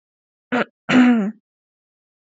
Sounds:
Throat clearing